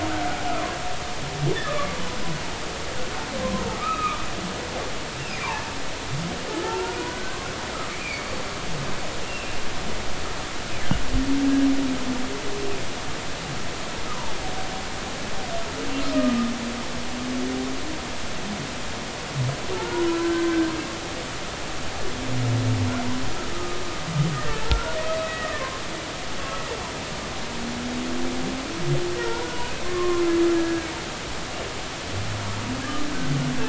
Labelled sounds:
2.6	4.2	humpback whale, 1.1 to 2.6 kHz
5.2	5.5	humpback whale, 2.3 to 2.8 kHz
6.6	8.3	humpback whale, 0.83 to 2.5 kHz
9.2	9.5	humpback whale, 2.6 to 2.9 kHz
19.7	20.7	humpback whale, 1.3 to 1.6 kHz
23.5	25.0	humpback whale, 1.2 to 1.9 kHz
25.2	25.5	humpback whale, 1.8 to 2.0 kHz
29.8	30.2	humpback whale, 0.99 to 1.2 kHz
30.6	30.9	humpback whale, 1.6 to 1.7 kHz

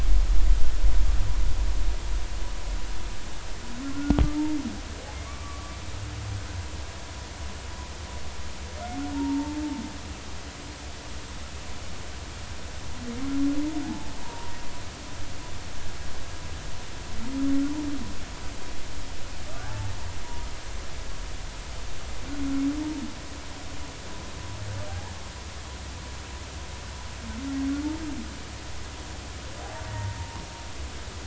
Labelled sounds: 3.8	4.2	humpback whale, 1.3 to 1.5 kHz
5.1	5.7	humpback whale, 1.1 to 2.4 kHz
9.1	9.6	humpback whale, 0.86 to 0.99 kHz
13.8	14.5	humpback whale, 0.80 to 1.0 kHz
19.5	20.0	humpback whale, 0.80 to 1.2 kHz
24.9	25.1	humpback whale, 0.80 to 1.0 kHz
29.9	30.2	humpback whale, 0.90 to 2.0 kHz

